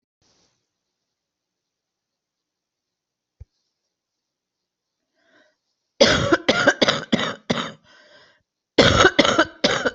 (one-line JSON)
{"expert_labels": [{"quality": "good", "cough_type": "wet", "dyspnea": false, "wheezing": false, "stridor": false, "choking": false, "congestion": false, "nothing": true, "diagnosis": "lower respiratory tract infection", "severity": "severe"}], "age": 52, "gender": "female", "respiratory_condition": false, "fever_muscle_pain": false, "status": "symptomatic"}